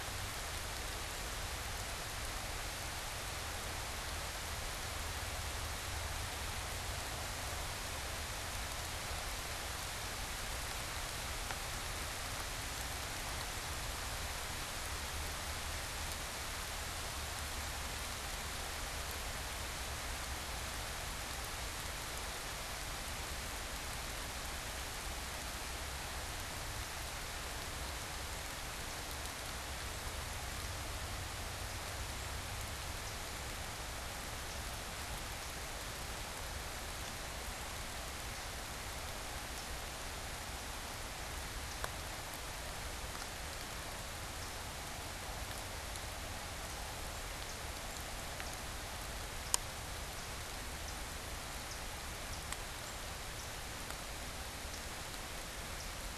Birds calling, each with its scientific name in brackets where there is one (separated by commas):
unidentified bird